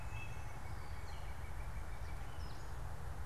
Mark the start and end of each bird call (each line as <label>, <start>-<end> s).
Northern Cardinal (Cardinalis cardinalis), 0.0-2.5 s
unidentified bird, 0.0-3.3 s